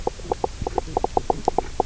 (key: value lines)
label: biophony, knock croak
recorder: SoundTrap 300